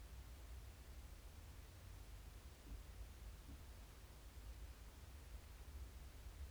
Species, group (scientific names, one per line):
Euthystira brachyptera
Orthoptera